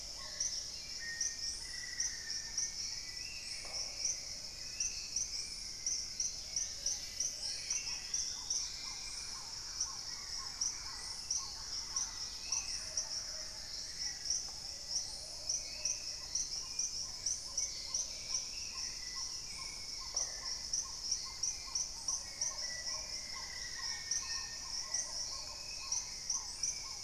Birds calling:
Thrush-like Wren (Campylorhynchus turdinus), Dusky-capped Greenlet (Pachysylvia hypoxantha), Black-faced Antthrush (Formicarius analis), Long-billed Woodcreeper (Nasica longirostris), Spot-winged Antshrike (Pygiptila stellaris), Black-tailed Trogon (Trogon melanurus), Hauxwell's Thrush (Turdus hauxwelli), Red-necked Woodpecker (Campephilus rubricollis), Dusky-throated Antshrike (Thamnomanes ardesiacus), Paradise Tanager (Tangara chilensis), Plumbeous Pigeon (Patagioenas plumbea), Buff-throated Woodcreeper (Xiphorhynchus guttatus)

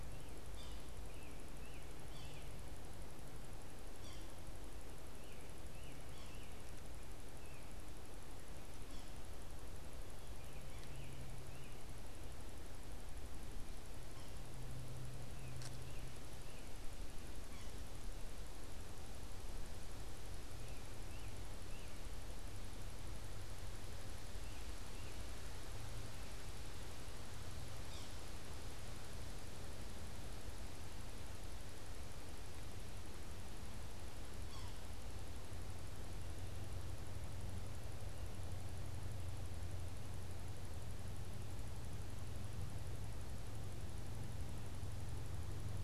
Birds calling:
Yellow-bellied Sapsucker (Sphyrapicus varius), American Robin (Turdus migratorius)

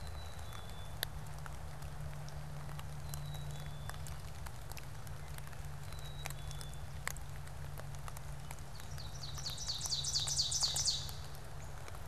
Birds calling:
Black-capped Chickadee (Poecile atricapillus), Ovenbird (Seiurus aurocapilla)

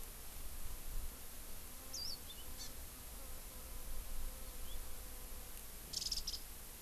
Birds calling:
Hawaii Amakihi (Chlorodrepanis virens), House Finch (Haemorhous mexicanus), Warbling White-eye (Zosterops japonicus)

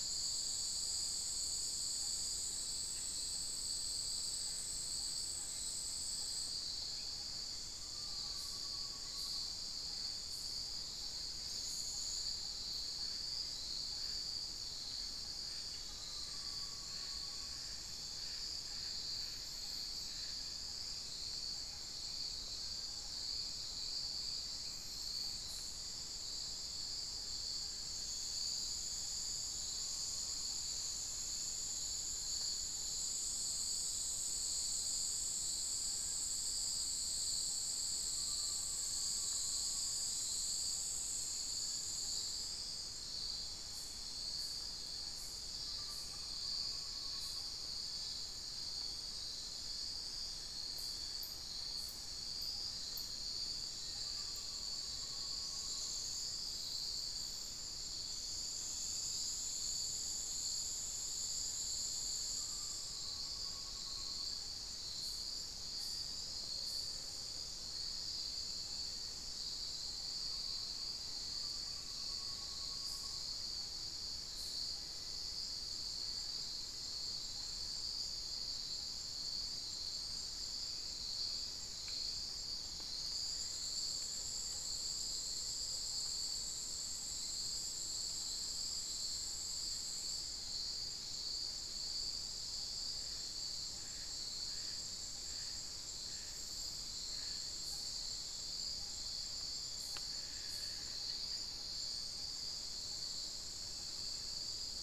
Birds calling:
Amazonian Pygmy-Owl (Glaucidium hardyi), unidentified bird, Little Tinamou (Crypturellus soui)

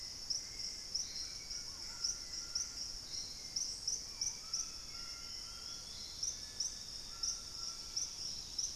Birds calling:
White-throated Toucan (Ramphastos tucanus), Purple-throated Fruitcrow (Querula purpurata), Hauxwell's Thrush (Turdus hauxwelli), Dusky-capped Greenlet (Pachysylvia hypoxantha), Gray Antbird (Cercomacra cinerascens), Dusky-throated Antshrike (Thamnomanes ardesiacus)

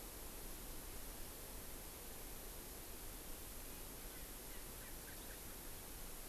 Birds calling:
Erckel's Francolin (Pternistis erckelii)

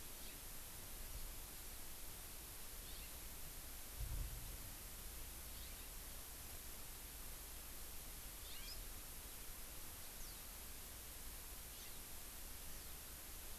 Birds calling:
Hawaii Amakihi (Chlorodrepanis virens), House Finch (Haemorhous mexicanus)

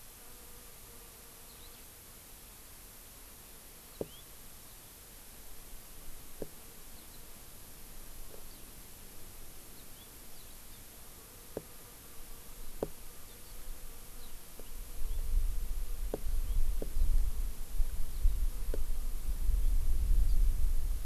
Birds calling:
Eurasian Skylark (Alauda arvensis), House Finch (Haemorhous mexicanus)

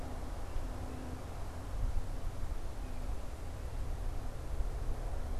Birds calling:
unidentified bird

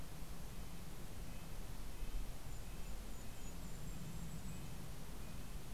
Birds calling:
Golden-crowned Kinglet (Regulus satrapa), Red-breasted Nuthatch (Sitta canadensis)

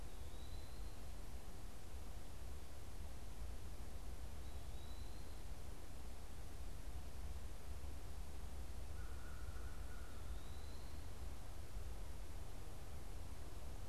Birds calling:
American Crow (Corvus brachyrhynchos), Eastern Wood-Pewee (Contopus virens)

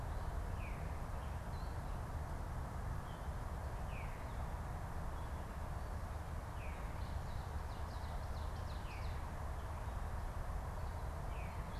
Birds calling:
Ovenbird (Seiurus aurocapilla), Veery (Catharus fuscescens)

